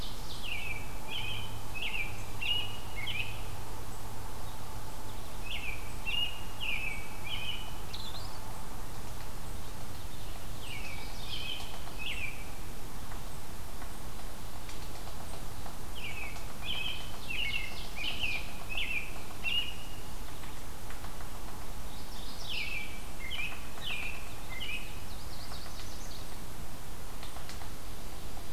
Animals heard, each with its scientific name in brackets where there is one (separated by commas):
American Robin (Turdus migratorius), Yellow-rumped Warbler (Setophaga coronata), Yellow-bellied Sapsucker (Sphyrapicus varius), Ovenbird (Seiurus aurocapilla), Mourning Warbler (Geothlypis philadelphia)